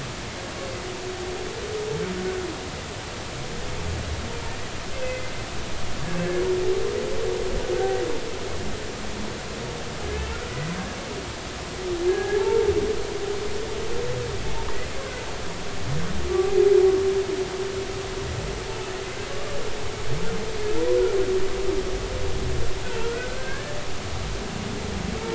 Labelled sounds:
4.9	5.3	humpback whale, 2.0 to 2.7 kHz
7.7	8.0	humpback whale, 1.5 to 1.6 kHz
12.1	12.7	humpback whale, 0.80 to 1.8 kHz
16.3	16.5	humpback whale, 1.1 to 1.2 kHz
23.0	23.8	humpback whale, 1.3 to 1.8 kHz

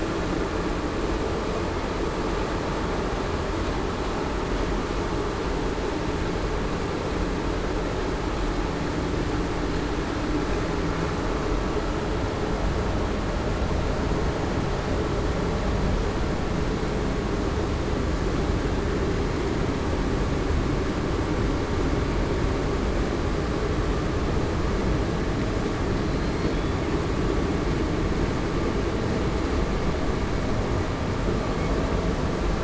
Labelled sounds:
26.0	26.5	killer whale, southern resident, 4.0 to 4.4 kHz

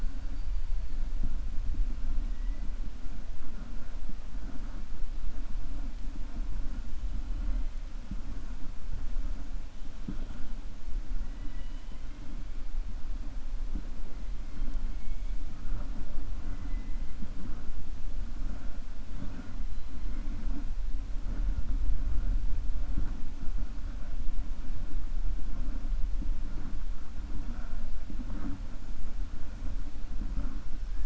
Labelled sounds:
11.3	12.1	killer whale, 1.0 to 4.0 kHz

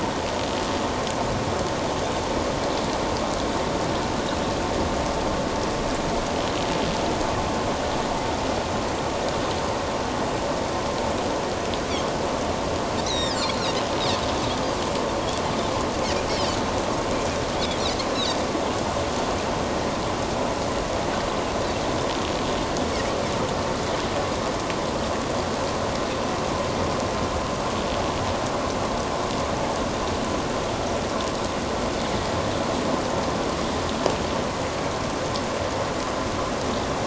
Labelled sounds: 13.0	13.6	Pacific white-sided dolphin, 1.6 to 5.9 kHz
16.3	16.6	Pacific white-sided dolphin, 4.4 to 5.4 kHz

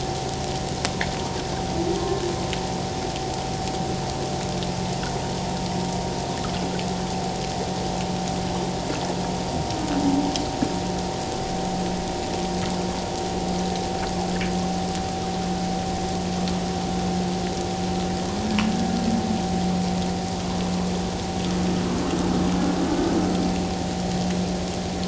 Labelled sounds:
2.0	2.2	humpback whale, 1.0 to 1.1 kHz

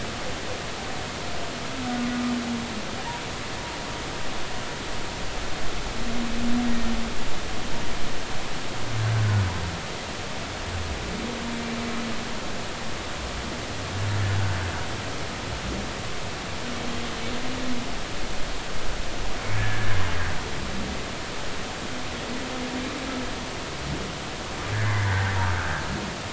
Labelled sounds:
6.6	6.9	humpback whale, 1.8 to 1.9 kHz
9.1	9.4	humpback whale, 1.4 to 1.6 kHz
19.6	19.9	humpback whale, 1.6 to 1.9 kHz
24.8	25.1	humpback whale, 1.9 to 2.2 kHz

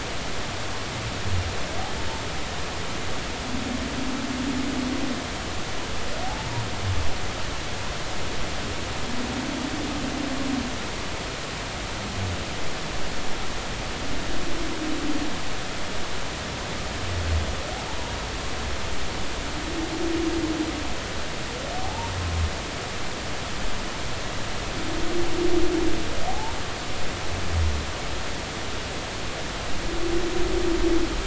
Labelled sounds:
6.2	6.6	humpback whale, 0.80 to 0.99 kHz
17.9	18.2	humpback whale, 0.80 to 0.99 kHz
21.8	22.1	humpback whale, 0.80 to 0.99 kHz
26.3	26.5	humpback whale, 0.80 to 0.99 kHz

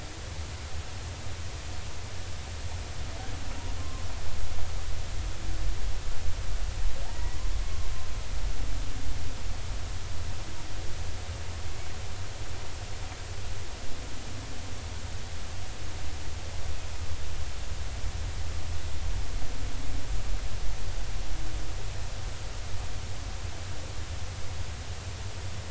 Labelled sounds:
3.8	4.1	humpback whale, 0.99 to 1.1 kHz
7.1	7.4	humpback whale, 0.80 to 2.0 kHz
7.6	7.9	humpback whale, 1.0 to 1.2 kHz

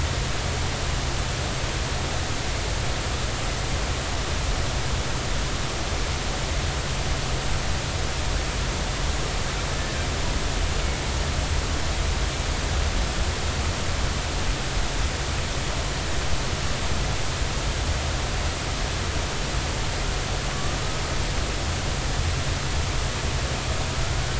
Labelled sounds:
9.7	10.1	killer whale, Bigg's (transient), 1.5 to 1.8 kHz
24.0	24.3	killer whale, Bigg's (transient), 1.3 to 1.6 kHz

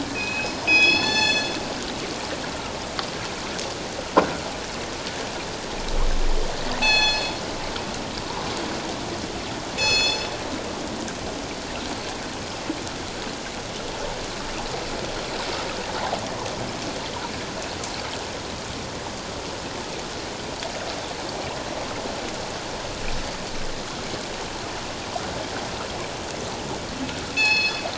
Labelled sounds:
1.0	1.5	killer whale, northern resident, G clan, call N24ii, 1.7 to 7.8 kHz
6.8	7.3	killer whale, northern resident, G clan, call N24ii, 0.78 to 7.9 kHz
9.7	10.3	killer whale, northern resident, G clan, call N24ii, 2.5 to 7.8 kHz
27.3	27.8	killer whale, northern resident, G clan, call N24ii, 1.7 to 6.1 kHz

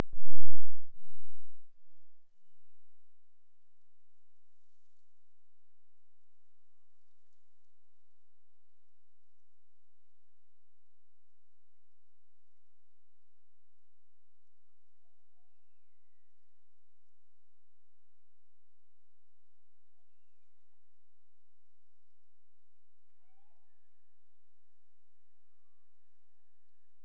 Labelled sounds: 2.2	3.0	killer whale, Bigg's (transient), Gulf of Alaska transient, 1.8 to 3.2 kHz
14.9	16.7	killer whale, Bigg's (transient), Gulf of Alaska transient, 0.48 to 2.8 kHz
19.8	21.2	killer whale, Bigg's (transient), Gulf of Alaska transient, 0.29 to 2.8 kHz
23.1	27.0	killer whale, Bigg's (transient), Gulf of Alaska transient, 0.50 to 3.5 kHz

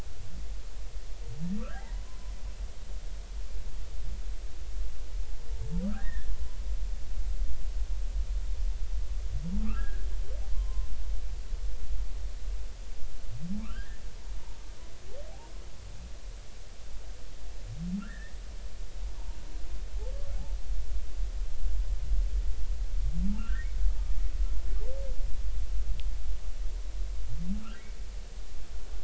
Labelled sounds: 1.6	2.3	humpback whale, 0.80 to 1.9 kHz
5.8	6.3	humpback whale, 1.2 to 1.9 kHz
9.6	10.1	humpback whale, 1.1 to 1.8 kHz
10.5	10.9	humpback whale, 0.96 to 1.1 kHz
13.6	14.0	humpback whale, 1.5 to 3.3 kHz
18.0	18.3	humpback whale, 1.2 to 2.0 kHz
23.4	23.7	humpback whale, 1.2 to 2.0 kHz

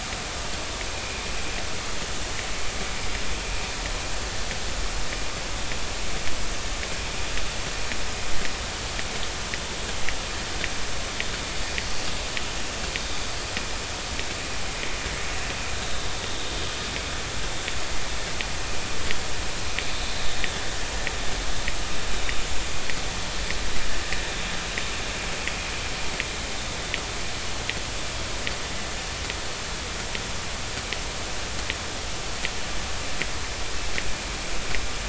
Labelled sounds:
1.0	1.2	vessel noise, 2.3 to 2.6 kHz

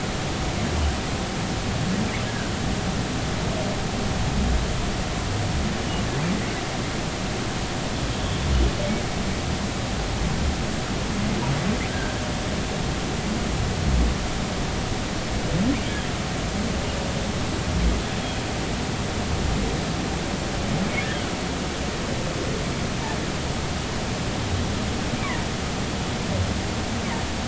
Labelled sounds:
2.3	2.5	humpback whale, 1.4 to 1.7 kHz
11.9	12.2	humpback whale, 1.5 to 1.7 kHz

